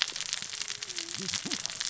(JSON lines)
{"label": "biophony, cascading saw", "recorder": "SoundTrap 600 or HydroMoth"}